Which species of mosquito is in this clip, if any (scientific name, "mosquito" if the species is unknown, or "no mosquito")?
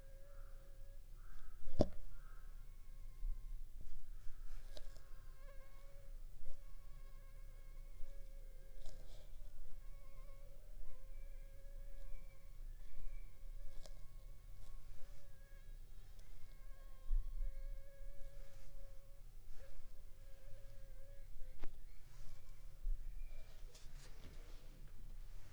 Anopheles funestus s.s.